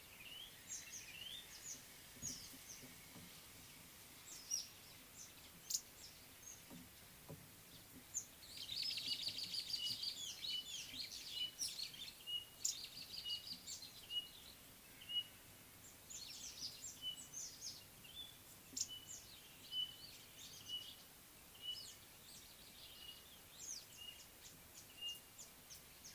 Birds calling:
White-browed Robin-Chat (Cossypha heuglini), Speckled Mousebird (Colius striatus), Red-faced Crombec (Sylvietta whytii), Superb Starling (Lamprotornis superbus)

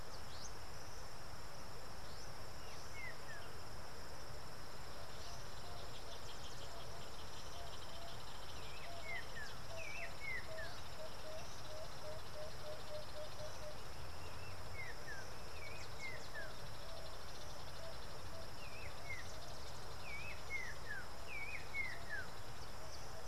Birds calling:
Northern Brownbul (Phyllastrephus strepitans), Emerald-spotted Wood-Dove (Turtur chalcospilos)

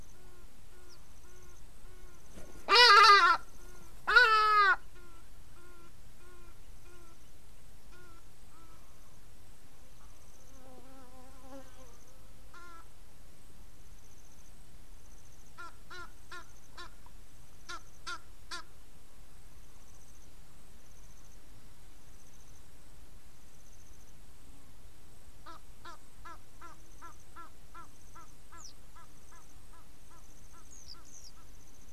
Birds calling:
Egyptian Goose (Alopochen aegyptiaca), Hadada Ibis (Bostrychia hagedash)

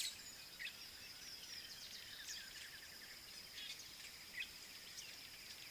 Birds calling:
Fork-tailed Drongo (Dicrurus adsimilis)

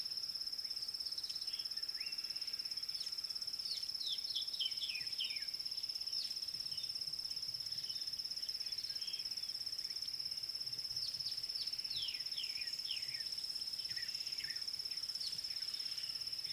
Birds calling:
White Helmetshrike (Prionops plumatus)

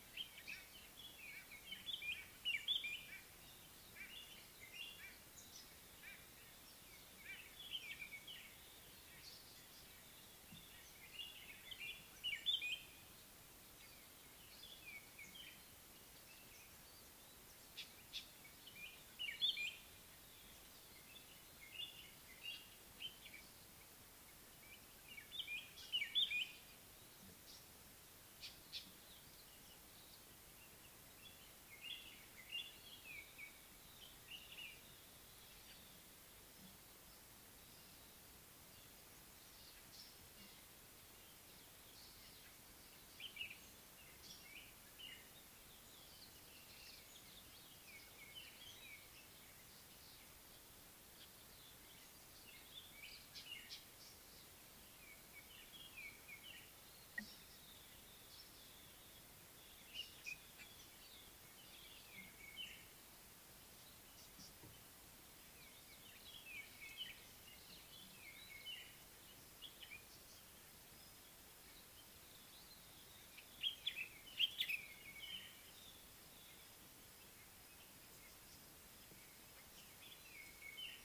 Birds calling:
Common Bulbul (Pycnonotus barbatus), Northern Puffback (Dryoscopus gambensis), White-browed Robin-Chat (Cossypha heuglini), African Paradise-Flycatcher (Terpsiphone viridis)

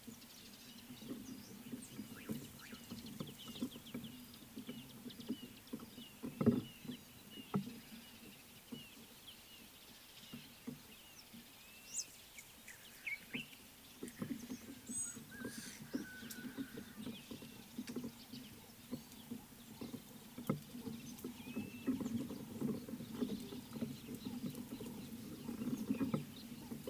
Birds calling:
Speckled Mousebird (Colius striatus), Blue-naped Mousebird (Urocolius macrourus)

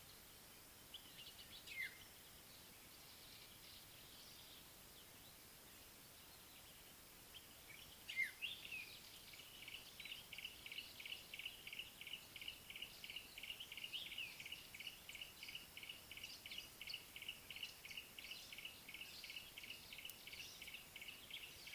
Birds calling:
Yellow-breasted Apalis (Apalis flavida), African Black-headed Oriole (Oriolus larvatus)

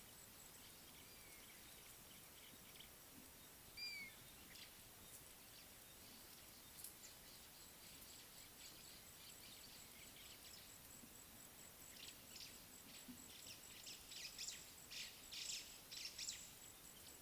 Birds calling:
African Gray Hornbill (Lophoceros nasutus), White-browed Sparrow-Weaver (Plocepasser mahali)

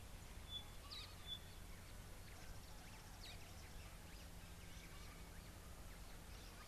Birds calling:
Parrot-billed Sparrow (Passer gongonensis)

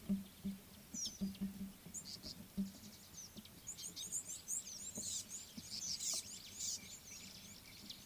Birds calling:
Red-cheeked Cordonbleu (Uraeginthus bengalus), Tawny-flanked Prinia (Prinia subflava)

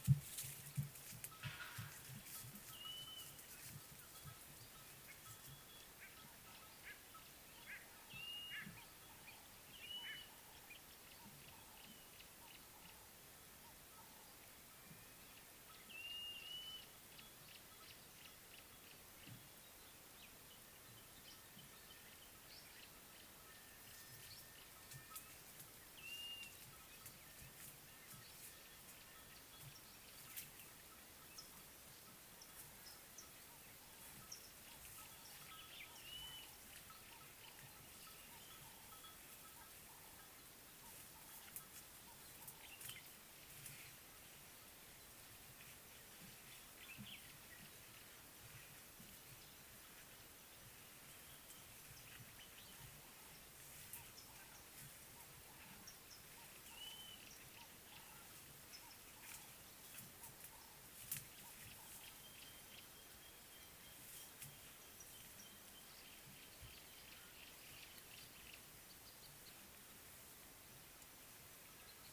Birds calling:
White-bellied Go-away-bird (Corythaixoides leucogaster), Blue-naped Mousebird (Urocolius macrourus)

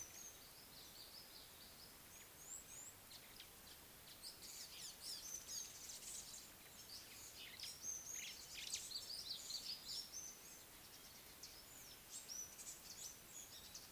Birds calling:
Red-cheeked Cordonbleu (Uraeginthus bengalus), African Gray Flycatcher (Bradornis microrhynchus), Red-faced Crombec (Sylvietta whytii)

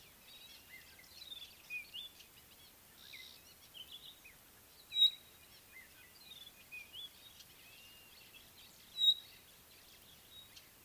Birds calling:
Blue-naped Mousebird (Urocolius macrourus), Red-backed Scrub-Robin (Cercotrichas leucophrys), Pygmy Batis (Batis perkeo)

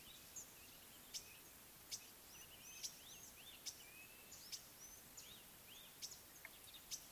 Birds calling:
Red-backed Scrub-Robin (Cercotrichas leucophrys), Green-winged Pytilia (Pytilia melba), African Gray Flycatcher (Bradornis microrhynchus)

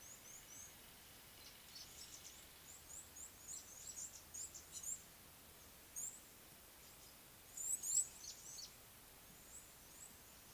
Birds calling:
Red-cheeked Cordonbleu (Uraeginthus bengalus), Gray-backed Camaroptera (Camaroptera brevicaudata)

